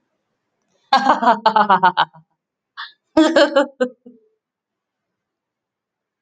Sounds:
Laughter